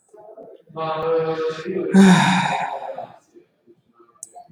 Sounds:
Sigh